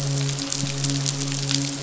{"label": "biophony, midshipman", "recorder": "SoundTrap 500"}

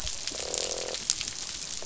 {"label": "biophony, croak", "recorder": "SoundTrap 500"}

